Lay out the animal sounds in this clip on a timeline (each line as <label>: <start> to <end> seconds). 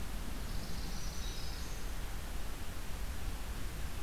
Swamp Sparrow (Melospiza georgiana): 0.2 to 1.4 seconds
Black-throated Green Warbler (Setophaga virens): 0.7 to 2.2 seconds